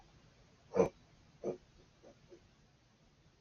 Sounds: Sniff